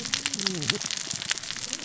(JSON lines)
{"label": "biophony, cascading saw", "recorder": "SoundTrap 600 or HydroMoth"}